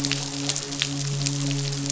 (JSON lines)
{"label": "biophony, midshipman", "recorder": "SoundTrap 500"}